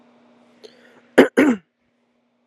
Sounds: Throat clearing